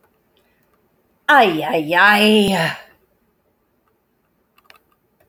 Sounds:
Sigh